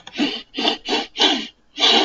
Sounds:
Sniff